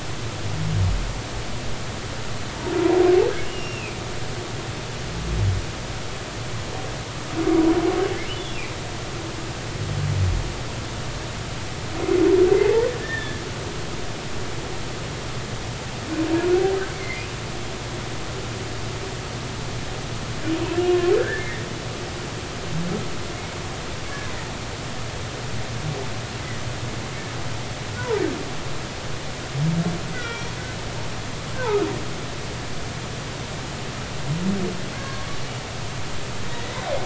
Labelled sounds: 3.4	4.0	humpback whale, 2.2 to 2.9 kHz
12.6	13.4	humpback whale, 0.80 to 3.6 kHz
16.9	17.3	humpback whale, 2.0 to 2.3 kHz
20.9	21.5	humpback whale, 1.0 to 1.8 kHz
24.1	24.3	humpback whale, 1.6 to 1.8 kHz
30.1	30.5	humpback whale, 1.3 to 3.5 kHz
34.9	35.4	humpback whale, 0.99 to 1.7 kHz

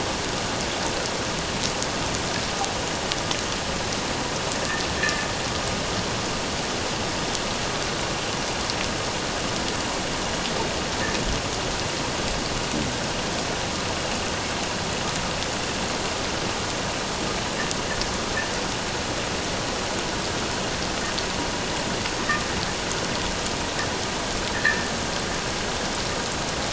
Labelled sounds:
5.0	5.2	metallic clang, 1.7 to 2.0 kHz
24.5	24.9	metallic clang, 1.6 to 2.1 kHz

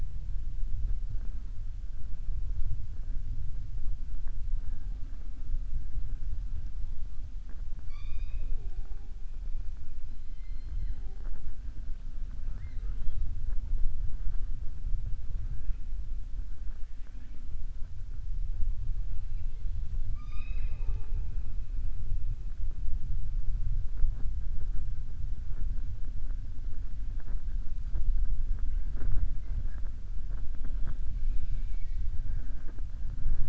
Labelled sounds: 7.8	9.0	killer whale, southern resident, 0.37 to 5.9 kHz
20.0	21.3	killer whale, southern resident, 0.39 to 6.0 kHz
31.4	32.0	killer whale, southern resident, 1.9 to 6.6 kHz

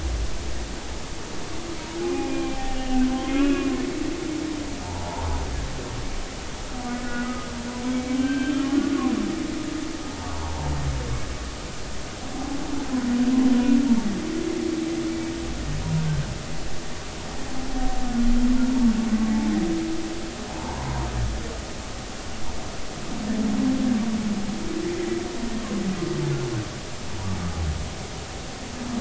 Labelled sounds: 2.0	3.7	humpback whale, 0.80 to 3.4 kHz
4.8	5.3	humpback whale, 0.83 to 1.1 kHz
6.9	8.6	humpback whale, 1.4 to 2.4 kHz
9.2	10.7	humpback whale, 0.80 to 3.2 kHz
20.5	21.1	humpback whale, 0.83 to 1.1 kHz
24.9	25.2	humpback whale, 1.9 to 2.1 kHz

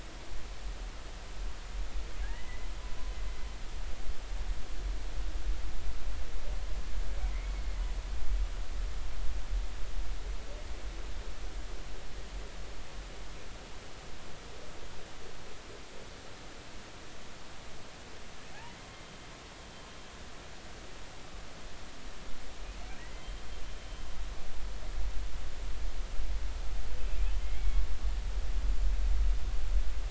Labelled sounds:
2.2	2.7	humpback whale, 1.5 to 2.1 kHz
23.0	23.4	humpback whale, 1.8 to 3.2 kHz
27.6	27.9	humpback whale, 2.2 to 2.3 kHz

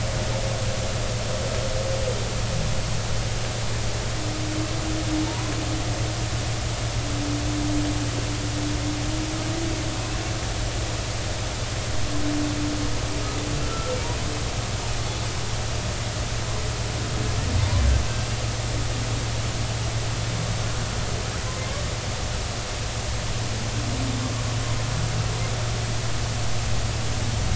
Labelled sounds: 5.3	5.5	humpback whale, 0.86 to 1.1 kHz
13.6	14.0	humpback whale, 1.3 to 1.4 kHz

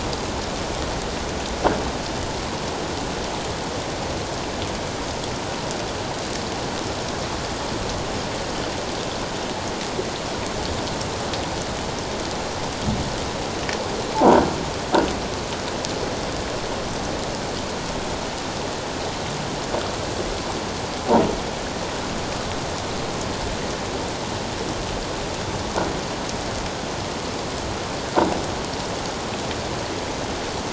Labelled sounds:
14.1	14.4	croaking sound likely from a nearby submerged object, 0.78 to 1.1 kHz

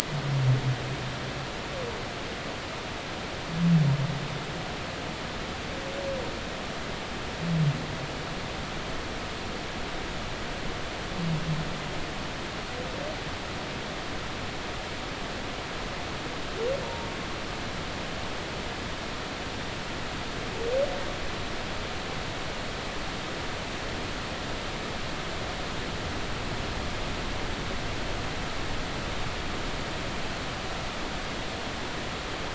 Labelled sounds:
16.8	17.1	humpback whale, 0.90 to 0.96 kHz

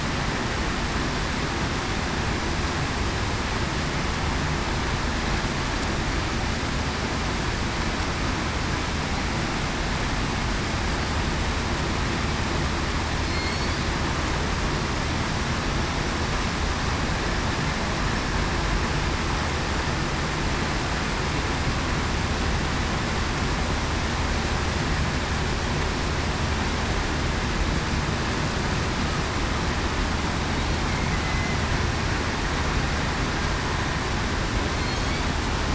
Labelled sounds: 13.2	13.8	killer whale, southern resident, 4.2 to 4.7 kHz
31.2	31.6	killer whale, southern resident, 2.0 to 2.1 kHz

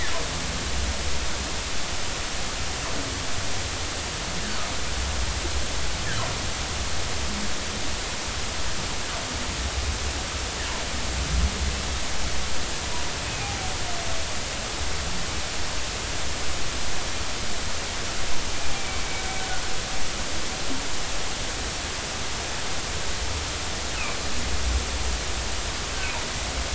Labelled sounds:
13.2	13.7	humpback whale, 0.80 to 2.6 kHz
18.7	19.0	humpback whale, 2.2 to 2.4 kHz

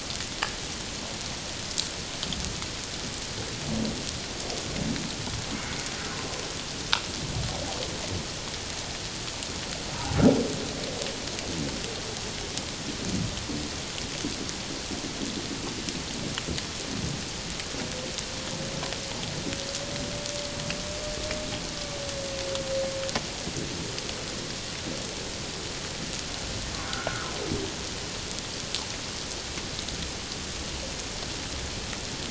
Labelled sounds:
9.9	10.2	humpback whale, 0.78 to 1.0 kHz
26.8	27.4	humpback whale, 1.2 to 1.6 kHz

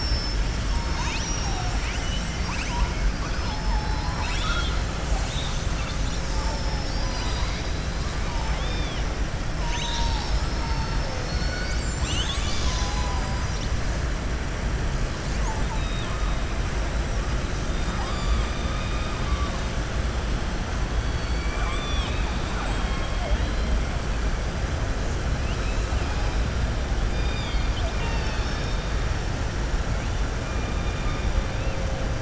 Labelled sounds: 1.4	2.9	killer whale, southern resident, 0.72 to 7.9 kHz
3.8	4.8	killer whale, southern resident, 0.85 to 7.9 kHz
17.6	19.1	killer whale, southern resident, 0.80 to 5.0 kHz
25.3	26.3	killer whale, southern resident, 2.0 to 5.0 kHz
27.0	28.8	killer whale, southern resident, 0.92 to 6.1 kHz

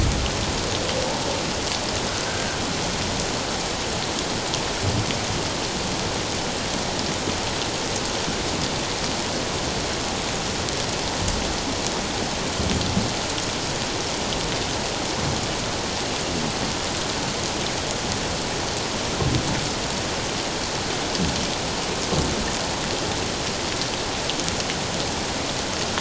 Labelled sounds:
2.2	2.6	humpback whale, 1.4 to 1.6 kHz

